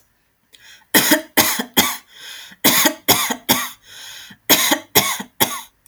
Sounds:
Cough